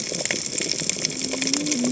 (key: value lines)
label: biophony, cascading saw
recorder: HydroMoth